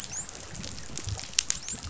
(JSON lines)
{"label": "biophony, dolphin", "recorder": "SoundTrap 500"}